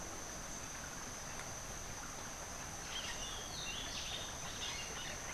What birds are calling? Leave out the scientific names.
Rufous-breasted Wren